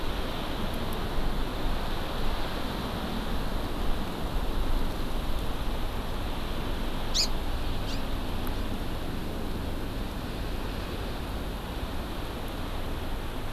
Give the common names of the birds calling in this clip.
Hawaii Amakihi